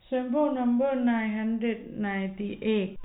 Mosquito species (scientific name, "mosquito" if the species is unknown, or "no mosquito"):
no mosquito